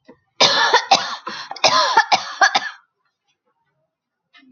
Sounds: Cough